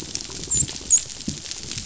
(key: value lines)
label: biophony, dolphin
recorder: SoundTrap 500